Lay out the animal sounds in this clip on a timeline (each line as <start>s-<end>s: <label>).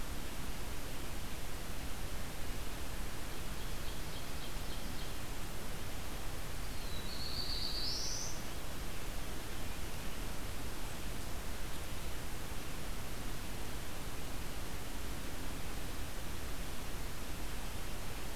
3.1s-5.3s: Ovenbird (Seiurus aurocapilla)
6.7s-8.6s: Black-throated Blue Warbler (Setophaga caerulescens)